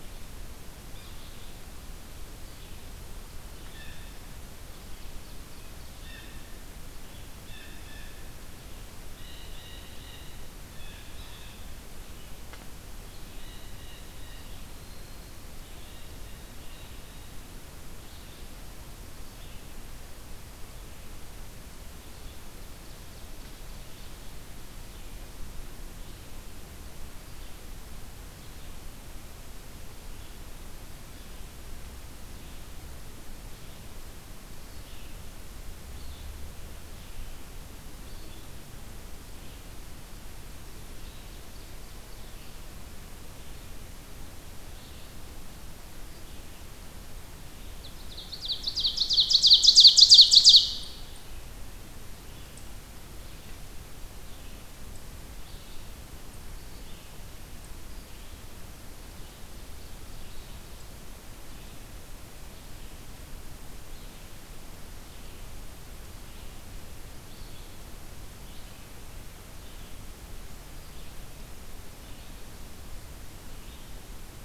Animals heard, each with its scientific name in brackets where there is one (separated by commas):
Blue Jay (Cyanocitta cristata), Ovenbird (Seiurus aurocapilla), Yellow-bellied Sapsucker (Sphyrapicus varius), Red-eyed Vireo (Vireo olivaceus)